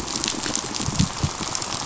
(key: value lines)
label: biophony, pulse
recorder: SoundTrap 500